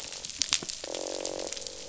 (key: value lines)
label: biophony, croak
recorder: SoundTrap 500